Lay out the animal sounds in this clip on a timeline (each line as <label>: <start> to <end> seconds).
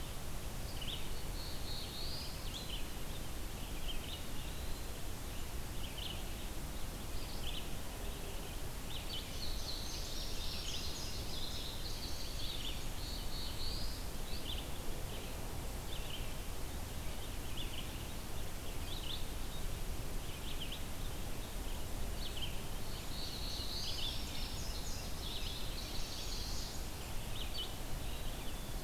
Red-eyed Vireo (Vireo olivaceus): 0.0 to 22.8 seconds
Black-throated Blue Warbler (Setophaga caerulescens): 1.0 to 2.4 seconds
Eastern Wood-Pewee (Contopus virens): 3.5 to 5.2 seconds
Indigo Bunting (Passerina cyanea): 9.0 to 12.6 seconds
Black-throated Blue Warbler (Setophaga caerulescens): 12.4 to 14.2 seconds
Black-throated Blue Warbler (Setophaga caerulescens): 22.7 to 24.2 seconds
Indigo Bunting (Passerina cyanea): 22.9 to 26.6 seconds
Red-eyed Vireo (Vireo olivaceus): 23.7 to 28.8 seconds
Chestnut-sided Warbler (Setophaga pensylvanica): 25.4 to 27.0 seconds
Black-capped Chickadee (Poecile atricapillus): 28.0 to 28.7 seconds